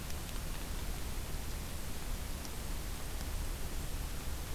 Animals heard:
forest ambience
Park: Acadia National Park